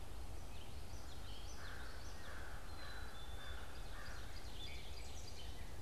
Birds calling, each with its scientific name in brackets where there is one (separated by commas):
Common Yellowthroat (Geothlypis trichas), American Crow (Corvus brachyrhynchos)